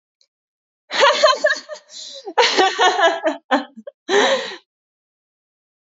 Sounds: Laughter